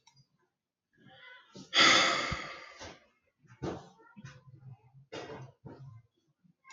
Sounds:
Sigh